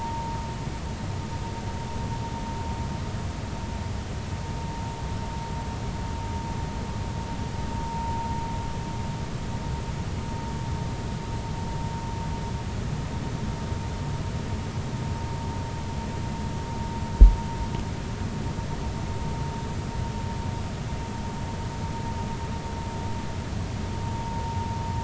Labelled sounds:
7.9	8.2	vessel noise, 0.90 to 0.99 kHz

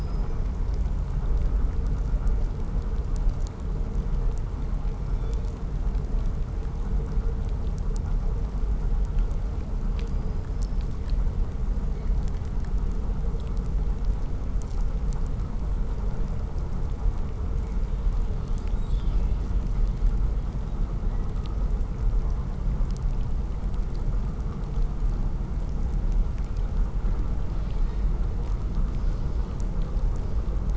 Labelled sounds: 4.8	5.7	killer whale, southern resident, 2.3 to 8.0 kHz
9.8	11.0	killer whale, southern resident, 4.4 to 5.6 kHz
27.3	28.1	killer whale, 1.2 to 6.7 kHz
28.6	30.7	killer whale, 1.5 to 7.4 kHz

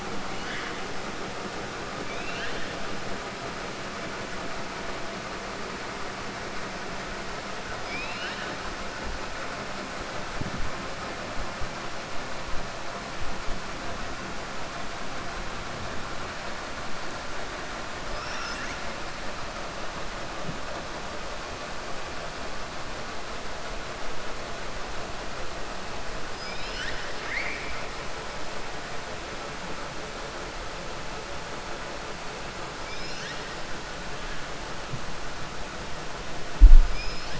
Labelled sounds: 2.0	2.7	killer whale, 1.5 to 4.4 kHz
7.8	8.5	killer whale, 1.5 to 5.3 kHz
26.3	27.8	killer whale, 1.5 to 5.9 kHz
32.8	33.5	killer whale, 1.6 to 6.9 kHz
36.8	37.3	killer whale, 2.3 to 6.1 kHz

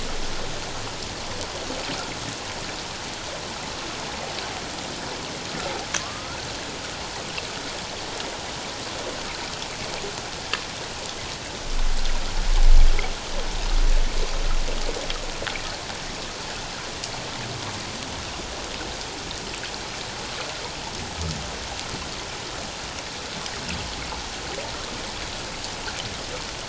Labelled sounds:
6.0	6.4	humpback whale, 1.0 to 1.5 kHz

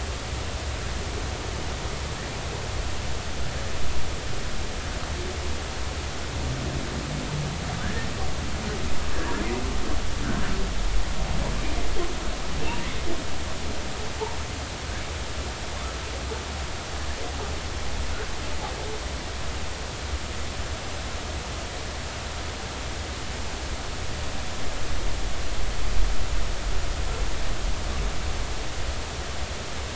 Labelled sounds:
7.8	8.1	humpback whale, 1.4 to 1.9 kHz
9.1	9.5	humpback whale, 1.5 to 1.9 kHz

